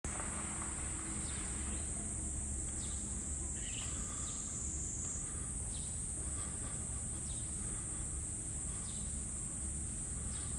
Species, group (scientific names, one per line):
Platypleura kaempferi
Cicadidae